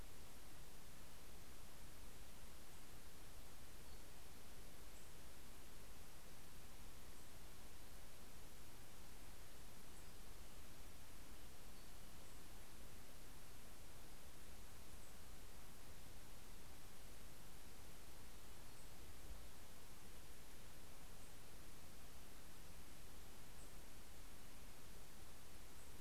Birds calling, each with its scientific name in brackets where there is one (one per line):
Nashville Warbler (Leiothlypis ruficapilla)